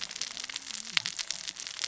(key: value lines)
label: biophony, cascading saw
recorder: SoundTrap 600 or HydroMoth